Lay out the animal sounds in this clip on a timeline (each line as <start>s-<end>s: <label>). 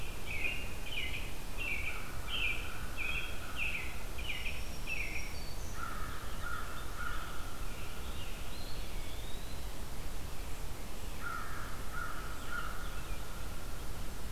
0.0s-5.4s: American Robin (Turdus migratorius)
1.7s-3.8s: American Crow (Corvus brachyrhynchos)
4.1s-5.9s: Black-throated Green Warbler (Setophaga virens)
5.7s-8.2s: American Crow (Corvus brachyrhynchos)
6.0s-9.2s: American Robin (Turdus migratorius)
8.4s-9.8s: Eastern Wood-Pewee (Contopus virens)
11.1s-12.9s: American Crow (Corvus brachyrhynchos)
12.1s-14.3s: American Robin (Turdus migratorius)